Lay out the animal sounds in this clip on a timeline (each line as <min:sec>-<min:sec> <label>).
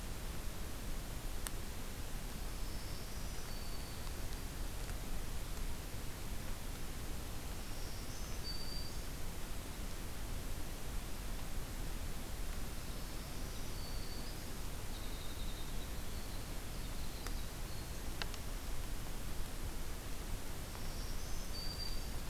0:02.3-0:04.2 Black-throated Green Warbler (Setophaga virens)
0:07.3-0:09.2 Black-throated Green Warbler (Setophaga virens)
0:12.7-0:18.3 Winter Wren (Troglodytes hiemalis)
0:20.5-0:22.3 Black-throated Green Warbler (Setophaga virens)